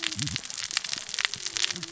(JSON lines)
{"label": "biophony, cascading saw", "recorder": "SoundTrap 600 or HydroMoth"}